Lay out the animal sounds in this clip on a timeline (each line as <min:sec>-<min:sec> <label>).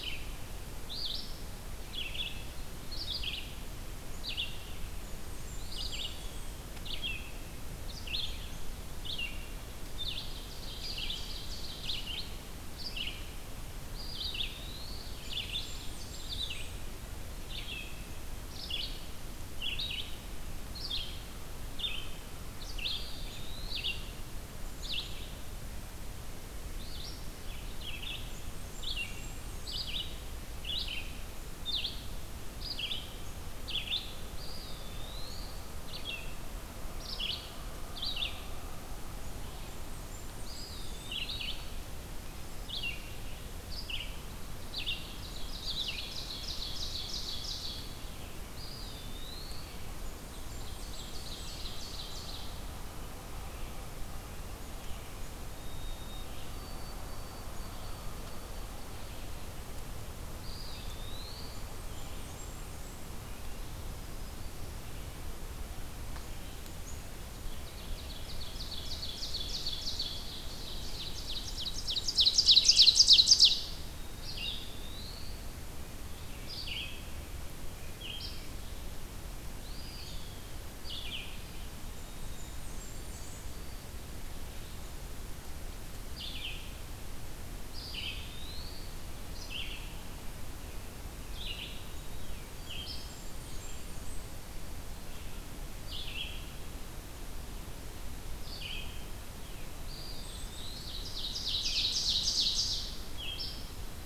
0:00.0-0:34.1 Red-eyed Vireo (Vireo olivaceus)
0:04.9-0:06.7 Blackburnian Warbler (Setophaga fusca)
0:10.3-0:12.4 Ovenbird (Seiurus aurocapilla)
0:13.6-0:15.6 Eastern Wood-Pewee (Contopus virens)
0:14.7-0:16.4 Ovenbird (Seiurus aurocapilla)
0:15.2-0:16.9 Blackburnian Warbler (Setophaga fusca)
0:22.6-0:24.2 Eastern Wood-Pewee (Contopus virens)
0:28.1-0:30.0 Blackburnian Warbler (Setophaga fusca)
0:34.3-0:36.0 Eastern Wood-Pewee (Contopus virens)
0:35.7-0:46.1 Red-eyed Vireo (Vireo olivaceus)
0:39.5-0:41.2 Blackburnian Warbler (Setophaga fusca)
0:40.3-0:41.9 Eastern Wood-Pewee (Contopus virens)
0:44.8-0:48.3 Ovenbird (Seiurus aurocapilla)
0:48.1-0:50.0 Eastern Wood-Pewee (Contopus virens)
0:50.1-0:53.1 Ovenbird (Seiurus aurocapilla)
0:50.1-0:51.7 Blackburnian Warbler (Setophaga fusca)
0:55.4-0:59.2 White-throated Sparrow (Zonotrichia albicollis)
1:00.1-1:02.1 Eastern Wood-Pewee (Contopus virens)
1:01.3-1:03.2 Blackburnian Warbler (Setophaga fusca)
1:07.4-1:13.7 Ovenbird (Seiurus aurocapilla)
1:11.3-1:13.0 Blackburnian Warbler (Setophaga fusca)
1:12.4-1:33.3 Red-eyed Vireo (Vireo olivaceus)
1:14.1-1:15.7 Eastern Wood-Pewee (Contopus virens)
1:19.5-1:20.5 Eastern Wood-Pewee (Contopus virens)
1:21.7-1:23.9 White-throated Sparrow (Zonotrichia albicollis)
1:21.8-1:23.6 Blackburnian Warbler (Setophaga fusca)
1:27.4-1:29.2 Eastern Wood-Pewee (Contopus virens)
1:32.4-1:34.4 Blackburnian Warbler (Setophaga fusca)
1:35.8-1:44.1 Red-eyed Vireo (Vireo olivaceus)
1:39.7-1:41.5 Eastern Wood-Pewee (Contopus virens)
1:40.0-1:40.9 Black-capped Chickadee (Poecile atricapillus)
1:40.3-1:43.3 Ovenbird (Seiurus aurocapilla)